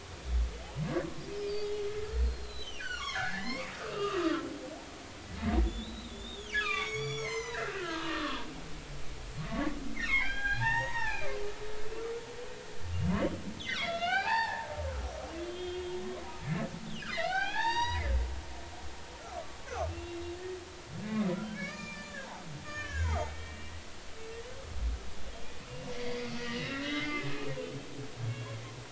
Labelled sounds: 1.4	4.4	humpback whale, 0.80 to 6.8 kHz
5.6	8.5	humpback whale, 0.90 to 8.0 kHz
9.5	11.3	humpback whale, 0.80 to 6.7 kHz
12.9	14.7	humpback whale, 0.80 to 5.5 kHz
15.4	15.9	humpback whale, 3.1 to 3.7 kHz
16.4	18.1	humpback whale, 0.80 to 7.7 kHz
19.3	20.2	humpback whale, 1.0 to 2.8 kHz
21.0	22.2	humpback whale, 1.1 to 7.3 kHz
22.6	23.7	humpback whale, 0.80 to 6.7 kHz
25.9	27.5	humpback whale, 1.4 to 3.9 kHz

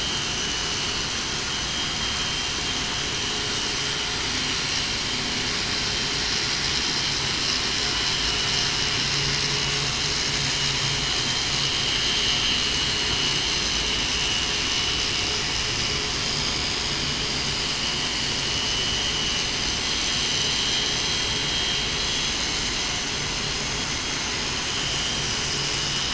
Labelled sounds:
18.7	19.0	vessel noise, 2.95 to 3.00 kHz
20.4	21.0	vessel noise, 3.2 to 3.3 kHz
21.9	22.3	vessel noise, 3.3 to 3.4 kHz
24.7	25.2	vessel noise, 2.9 to 3.2 kHz

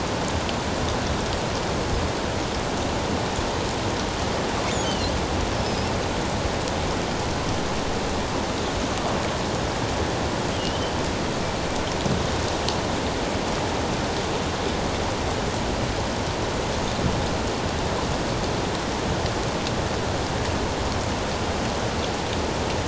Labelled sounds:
4.8	5.1	killer whale, offshore, 2.7 to 3.2 kHz
5.6	5.9	killer whale, offshore, 4.9 to 5.5 kHz

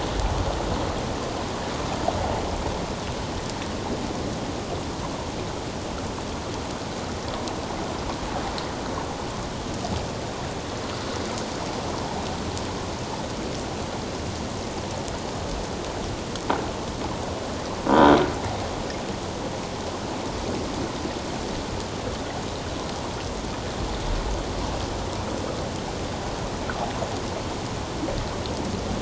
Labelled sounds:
17.9	18.2	croaking sound likely from a nearby submerged object, 1.4 to 3.9 kHz

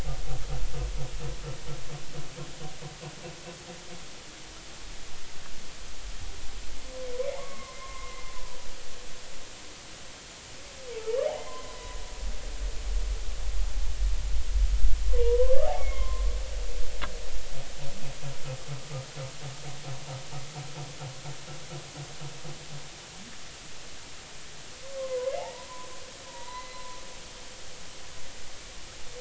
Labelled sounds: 7.2	8.3	humpback whale, 0.83 to 2.4 kHz
11.5	12.0	humpback whale, 0.96 to 1.1 kHz
15.2	16.3	humpback whale, 0.90 to 2.3 kHz
24.9	25.9	humpback whale, 0.80 to 1.2 kHz
26.3	27.0	humpback whale, 0.90 to 2.1 kHz

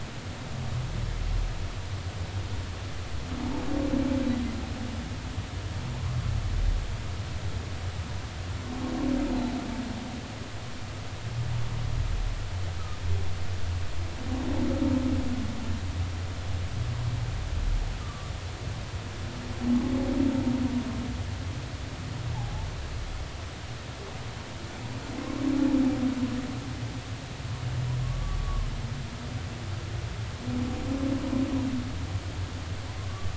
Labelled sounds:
18.0	18.3	humpback whale, 1.1 to 1.3 kHz
22.3	22.7	humpback whale, 0.80 to 0.93 kHz
28.0	28.7	humpback whale, 1.0 to 1.2 kHz
33.1	33.3	humpback whale, 1.1 to 1.2 kHz

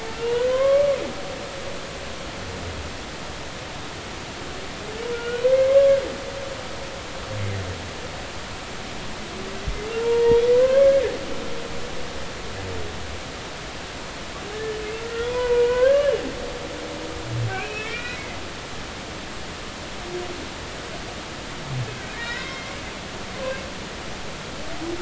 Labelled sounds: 0.1	0.9	humpback whale, 0.86 to 3.0 kHz
5.1	6.0	humpback whale, 1.0 to 3.1 kHz
9.6	10.9	humpback whale, 0.86 to 2.1 kHz
14.5	16.1	humpback whale, 0.90 to 2.5 kHz
17.5	18.4	humpback whale, 1.3 to 2.7 kHz
22.2	22.7	humpback whale, 1.4 to 5.4 kHz

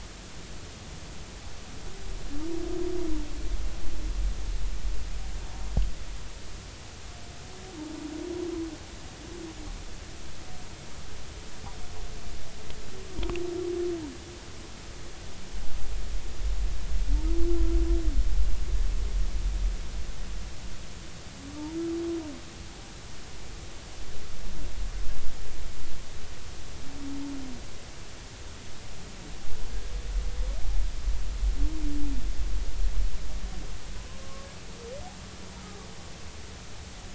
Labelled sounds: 34.2	34.5	humpback whale, 1.0 to 1.2 kHz

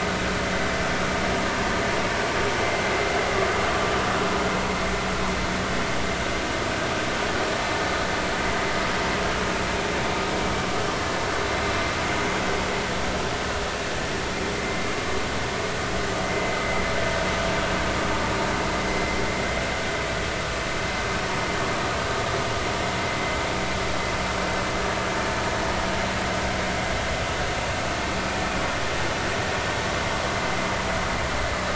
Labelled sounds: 16.2	16.6	vessel noise, 2.0 to 2.1 kHz

